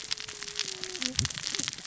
{"label": "biophony, cascading saw", "recorder": "SoundTrap 600 or HydroMoth"}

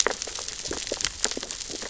{"label": "biophony, sea urchins (Echinidae)", "recorder": "SoundTrap 600 or HydroMoth"}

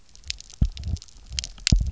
{"label": "biophony, double pulse", "recorder": "SoundTrap 300"}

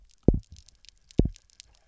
{"label": "biophony, double pulse", "recorder": "SoundTrap 300"}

